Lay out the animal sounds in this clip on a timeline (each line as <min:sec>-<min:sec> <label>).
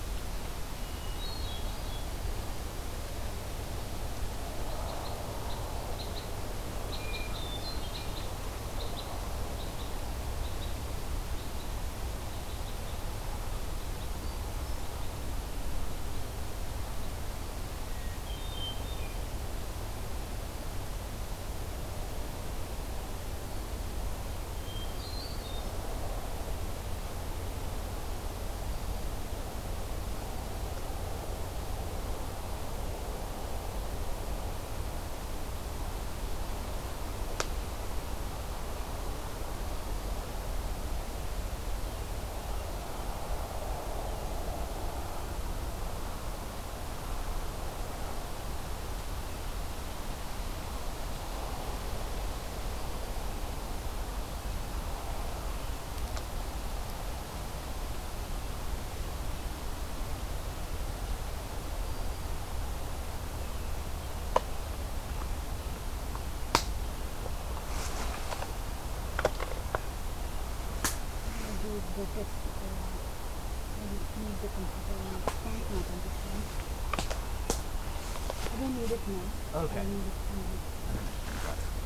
0:00.8-0:02.3 Hermit Thrush (Catharus guttatus)
0:04.5-0:11.8 Red Crossbill (Loxia curvirostra)
0:06.7-0:08.3 Hermit Thrush (Catharus guttatus)
0:12.1-0:15.3 Red Crossbill (Loxia curvirostra)
0:17.8-0:19.4 Hermit Thrush (Catharus guttatus)
0:24.5-0:25.9 Hermit Thrush (Catharus guttatus)
1:03.1-1:06.2 American Robin (Turdus migratorius)